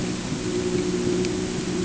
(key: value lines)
label: anthrophony, boat engine
recorder: HydroMoth